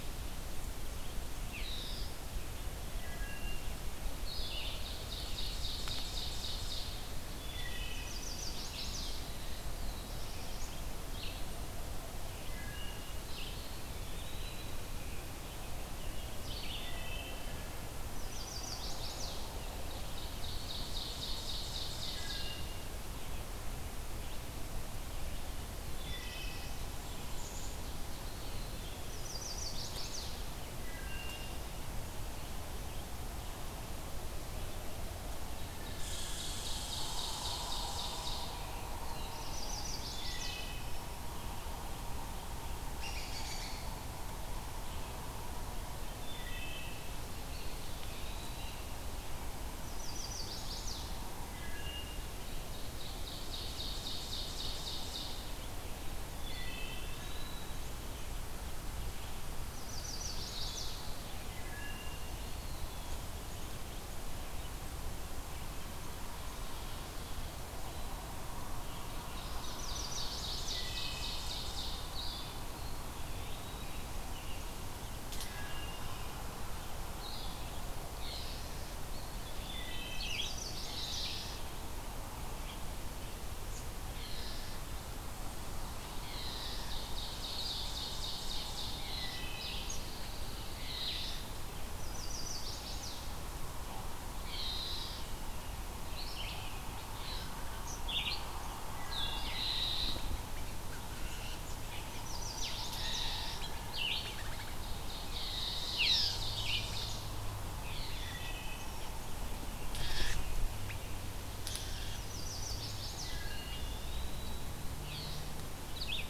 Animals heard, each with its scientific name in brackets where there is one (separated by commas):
Black-throated Blue Warbler (Setophaga caerulescens), unidentified call, American Robin (Turdus migratorius), Red Squirrel (Tamiasciurus hudsonicus), Eastern Wood-Pewee (Contopus virens), Wood Thrush (Hylocichla mustelina), Ovenbird (Seiurus aurocapilla), Pine Warbler (Setophaga pinus), Red-eyed Vireo (Vireo olivaceus), Chestnut-sided Warbler (Setophaga pensylvanica), Black-capped Chickadee (Poecile atricapillus), Blue-headed Vireo (Vireo solitarius)